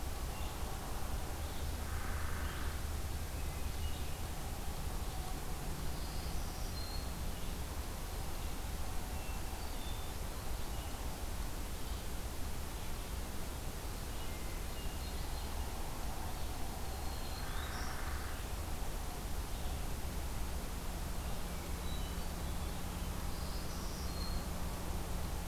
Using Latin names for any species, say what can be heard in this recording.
Vireo olivaceus, Dryobates villosus, Setophaga virens, Catharus guttatus